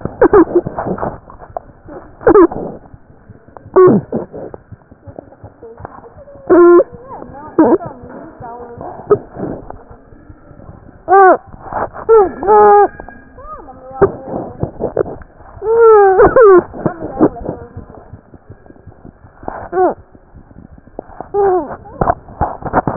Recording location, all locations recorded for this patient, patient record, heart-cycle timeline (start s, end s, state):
aortic valve (AV)
aortic valve (AV)+mitral valve (MV)
#Age: Infant
#Sex: Male
#Height: 62.0 cm
#Weight: 7.6 kg
#Pregnancy status: False
#Murmur: Unknown
#Murmur locations: nan
#Most audible location: nan
#Systolic murmur timing: nan
#Systolic murmur shape: nan
#Systolic murmur grading: nan
#Systolic murmur pitch: nan
#Systolic murmur quality: nan
#Diastolic murmur timing: nan
#Diastolic murmur shape: nan
#Diastolic murmur grading: nan
#Diastolic murmur pitch: nan
#Diastolic murmur quality: nan
#Outcome: Abnormal
#Campaign: 2015 screening campaign
0.00	17.59	unannotated
17.59	17.67	S1
17.67	17.75	systole
17.75	17.84	S2
17.84	17.95	diastole
17.95	18.04	S1
18.04	18.11	systole
18.11	18.19	S2
18.19	18.31	diastole
18.31	18.41	S1
18.41	18.48	systole
18.48	18.57	S2
18.57	18.68	diastole
18.68	18.76	S1
18.76	18.86	systole
18.86	18.92	S2
18.92	19.04	diastole
19.04	19.11	S1
19.11	19.23	systole
19.23	19.30	S2
19.30	19.42	diastole
19.42	19.48	S1
19.48	22.96	unannotated